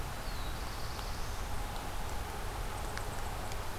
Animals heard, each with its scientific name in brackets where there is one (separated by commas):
Eastern Chipmunk (Tamias striatus), Black-throated Blue Warbler (Setophaga caerulescens)